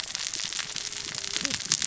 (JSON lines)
{"label": "biophony, cascading saw", "recorder": "SoundTrap 600 or HydroMoth"}